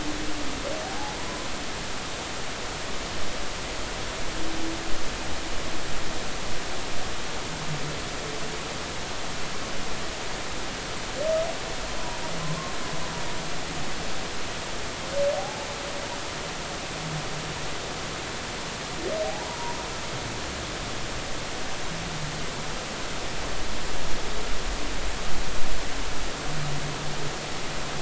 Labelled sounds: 0.9	1.2	humpback whale, 0.80 to 0.90 kHz
15.4	15.7	humpback whale, 0.80 to 0.93 kHz
19.2	19.8	humpback whale, 0.80 to 1.1 kHz

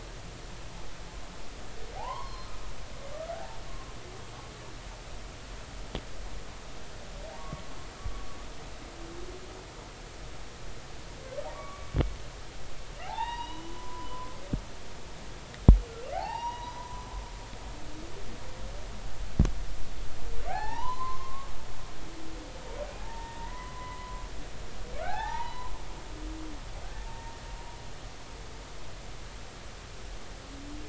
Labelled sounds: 2.0	2.5	humpback whale, 0.80 to 5.5 kHz
3.3	3.6	humpback whale, 0.80 to 0.96 kHz
7.4	7.6	humpback whale, 1.1 to 1.2 kHz
11.5	11.9	humpback whale, 1.1 to 1.2 kHz
13.0	14.4	humpback whale, 0.80 to 5.1 kHz
16.1	17.1	humpback whale, 0.80 to 6.0 kHz
20.5	21.5	humpback whale, 0.80 to 3.1 kHz
23.0	24.2	humpback whale, 0.80 to 2.0 kHz
25.0	25.7	humpback whale, 0.80 to 4.1 kHz
27.1	27.4	humpback whale, 0.86 to 0.99 kHz

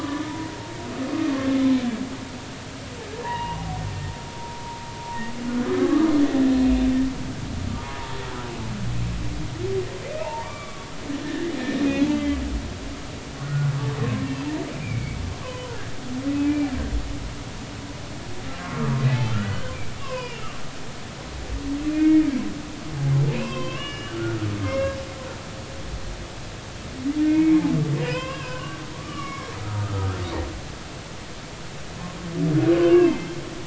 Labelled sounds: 1.0	1.4	humpback whale, 2.4 to 2.6 kHz
3.2	3.6	humpback whale, 0.80 to 2.9 kHz
5.8	6.1	humpback whale, 1.1 to 1.3 kHz
10.0	10.9	humpback whale, 0.80 to 2.7 kHz
11.2	11.5	humpback whale, 1.6 to 2.1 kHz
11.9	12.1	humpback whale, 2.4 to 2.6 kHz
13.4	13.7	humpback whale, 1.4 to 1.5 kHz
14.7	15.2	humpback whale, 2.1 to 2.5 kHz
16.4	16.7	humpback whale, 2.3 to 2.4 kHz
18.6	21.4	humpback whale, 0.93 to 5.1 kHz
21.9	22.3	humpback whale, 1.8 to 2.2 kHz
23.3	24.4	humpback whale, 0.96 to 5.2 kHz
24.6	25.0	humpback whale, 1.0 to 2.8 kHz
27.3	27.6	humpback whale, 2.1 to 2.6 kHz
28.0	28.7	humpback whale, 1.4 to 5.4 kHz
29.0	30.2	humpback whale, 0.93 to 3.2 kHz
32.7	33.3	humpback whale, 1.4 to 2.9 kHz

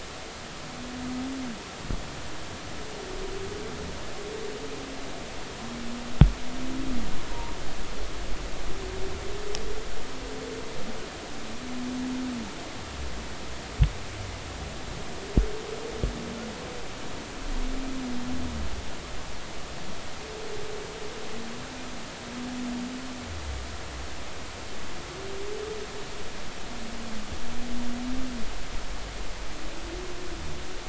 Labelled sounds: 7.3	7.6	humpback whale, 0.86 to 1.1 kHz

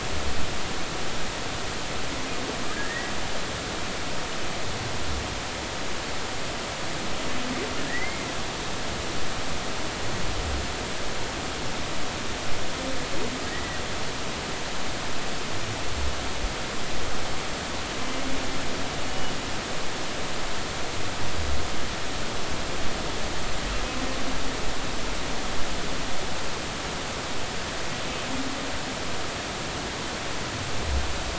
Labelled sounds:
2.7	3.1	humpback whale, 1.5 to 2.0 kHz
7.9	8.3	humpback whale, 1.6 to 2.2 kHz
13.5	13.8	humpback whale, 1.8 to 2.0 kHz

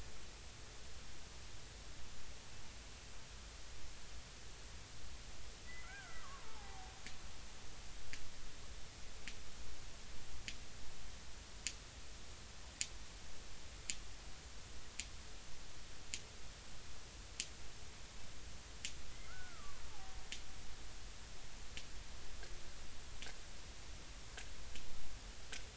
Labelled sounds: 5.7	6.9	killer whale, Bigg's (transient), 0.80 to 2.1 kHz
19.3	20.1	killer whale, Bigg's (transient), 0.80 to 1.6 kHz

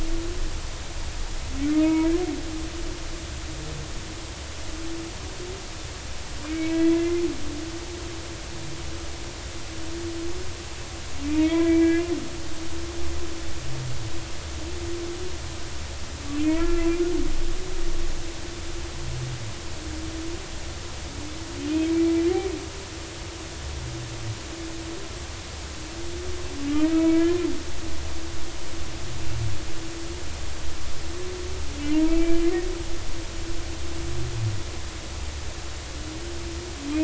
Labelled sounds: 1.8	2.1	humpback whale, 0.90 to 1.0 kHz
6.5	7.2	humpback whale, 1.9 to 2.3 kHz
11.4	12.1	humpback whale, 1.9 to 2.5 kHz
16.4	16.8	humpback whale, 1.3 to 2.7 kHz
26.7	27.4	humpback whale, 1.2 to 2.6 kHz
32.1	32.4	humpback whale, 2.2 to 2.4 kHz

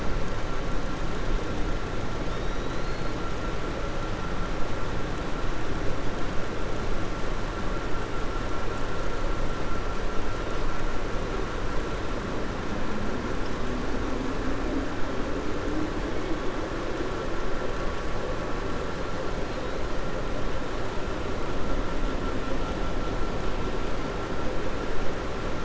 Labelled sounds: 2.2	3.1	killer whale, 3.6 to 4.4 kHz

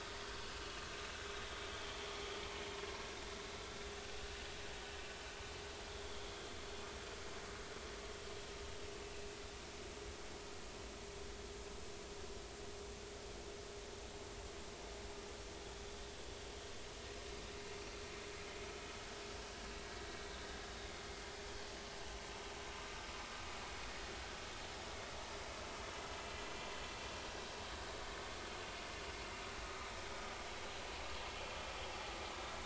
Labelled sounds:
5.9	6.5	vessel noise, 3.1 to 3.5 kHz

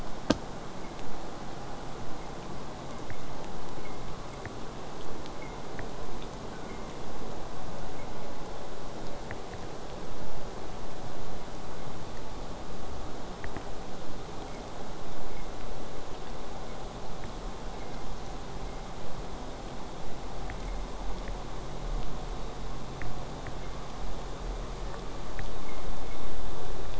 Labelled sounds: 6.1	6.9	killer whale, southern resident, J pod, 0.38 to 1.7 kHz
22.0	26.9	vessel noise, 0.09 to 8.0 kHz

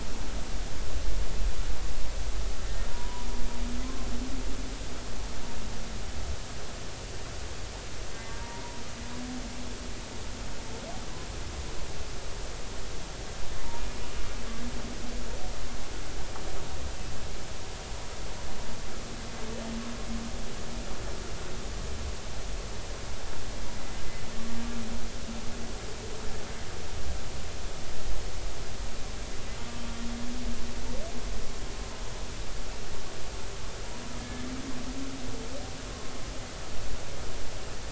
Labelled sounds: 2.9	3.3	humpback whale, 0.90 to 1.1 kHz
3.8	4.1	humpback whale, 0.99 to 1.1 kHz
8.2	8.6	humpback whale, 0.86 to 0.99 kHz
34.2	34.4	humpback whale, 1.7 to 1.8 kHz

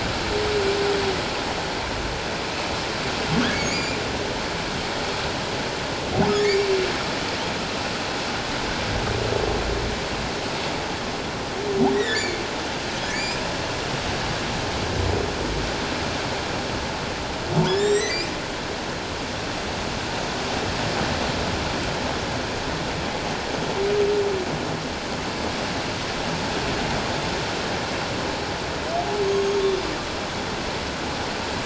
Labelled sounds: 3.5	4.0	humpback whale, 2.1 to 7.3 kHz
6.3	6.7	humpback whale, 1.7 to 2.4 kHz
11.9	12.4	humpback whale, 1.7 to 7.6 kHz
13.1	13.4	humpback whale, 2.1 to 7.6 kHz
17.7	18.2	humpback whale, 1.7 to 8.0 kHz
29.2	29.6	humpback whale, 6.4 to 6.6 kHz

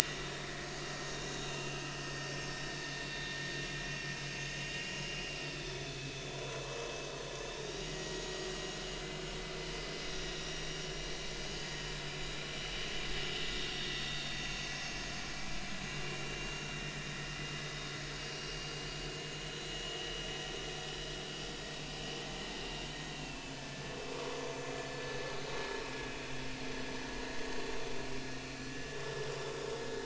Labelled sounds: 0.0	0.4	vessel noise, 6.4 to 6.6 kHz
1.1	2.1	vessel noise, 2.5 to 3.9 kHz
4.6	6.6	vessel noise, 0.96 to 6.3 kHz
7.0	8.2	vessel noise, 1.9 to 6.8 kHz
10.3	10.6	vessel noise, 5.6 to 5.8 kHz
13.3	15.1	vessel noise, 2.7 to 6.5 kHz
15.8	16.2	vessel noise, 2.8 to 2.9 kHz
18.1	18.8	vessel noise, 4.7 to 4.8 kHz
19.7	20.2	vessel noise, 2.8 to 3.1 kHz
22.6	24.7	vessel noise, 1.6 to 6.5 kHz

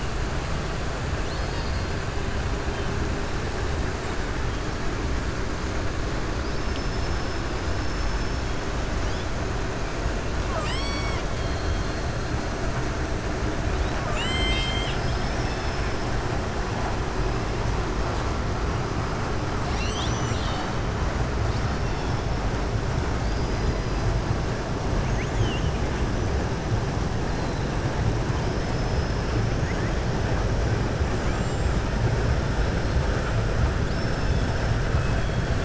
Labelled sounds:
6.3	8.4	killer whale, southern resident, 4.5 to 6.2 kHz
10.4	11.2	killer whale, southern resident, 0.92 to 8.0 kHz
14.0	16.0	killer whale, southern resident, 1.1 to 7.9 kHz
31.1	31.8	killer whale, southern resident, 6.4 to 7.6 kHz
33.8	34.6	killer whale, southern resident, 2.6 to 6.2 kHz
34.9	35.4	killer whale, southern resident, 1.9 to 3.4 kHz

